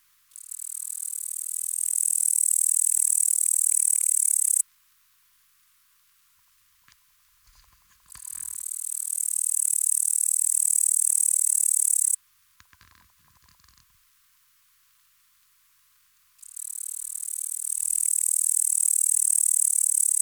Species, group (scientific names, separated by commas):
Tettigonia cantans, Orthoptera